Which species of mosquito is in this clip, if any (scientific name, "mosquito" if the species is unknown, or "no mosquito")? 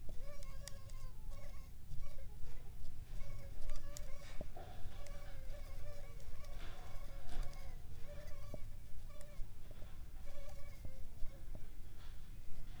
Anopheles arabiensis